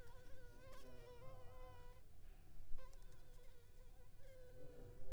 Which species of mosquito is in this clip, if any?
Anopheles arabiensis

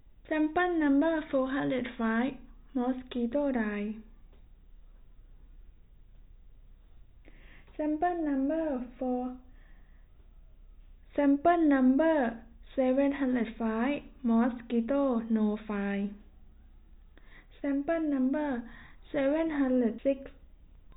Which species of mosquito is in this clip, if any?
no mosquito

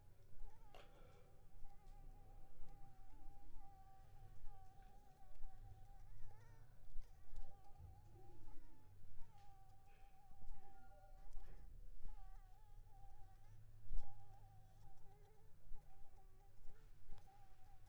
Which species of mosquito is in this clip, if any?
Anopheles funestus s.s.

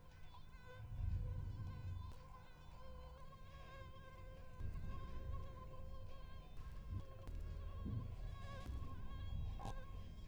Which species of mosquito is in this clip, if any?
Anopheles stephensi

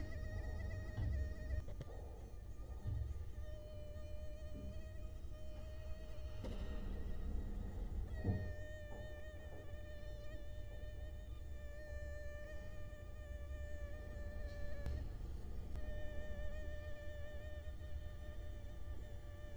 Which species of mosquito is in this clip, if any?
Culex quinquefasciatus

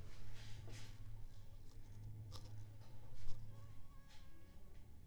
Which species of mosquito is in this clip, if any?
Aedes aegypti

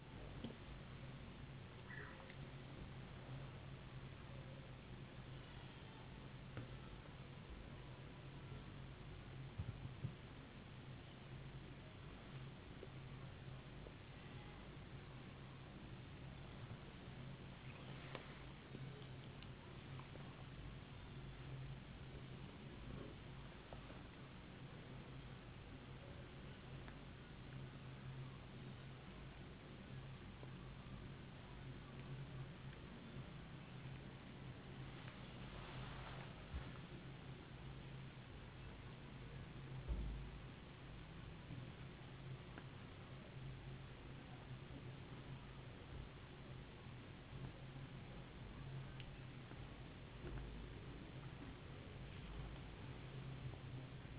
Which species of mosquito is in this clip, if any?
no mosquito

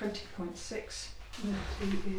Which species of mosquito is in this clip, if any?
Culex quinquefasciatus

